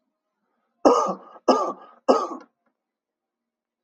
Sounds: Cough